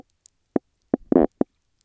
{"label": "biophony, knock croak", "recorder": "SoundTrap 300"}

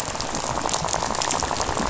{"label": "biophony, rattle", "recorder": "SoundTrap 500"}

